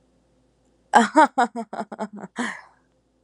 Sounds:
Laughter